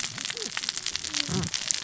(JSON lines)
{"label": "biophony, cascading saw", "recorder": "SoundTrap 600 or HydroMoth"}